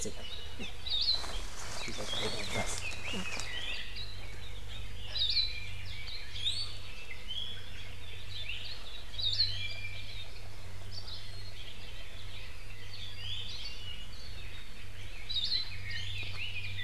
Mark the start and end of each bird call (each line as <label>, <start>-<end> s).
Apapane (Himatione sanguinea), 0.6-0.8 s
Hawaii Akepa (Loxops coccineus), 0.8-1.4 s
Red-billed Leiothrix (Leiothrix lutea), 1.7-4.1 s
Iiwi (Drepanis coccinea), 2.0-2.5 s
Iiwi (Drepanis coccinea), 3.5-3.9 s
Hawaii Akepa (Loxops coccineus), 5.1-5.7 s
Apapane (Himatione sanguinea), 5.8-6.1 s
Iiwi (Drepanis coccinea), 6.3-6.8 s
Hawaii Akepa (Loxops coccineus), 9.1-9.7 s
Hawaii Akepa (Loxops coccineus), 10.9-11.3 s
Iiwi (Drepanis coccinea), 13.1-13.6 s
Hawaii Akepa (Loxops coccineus), 15.2-15.8 s
Iiwi (Drepanis coccinea), 15.9-16.3 s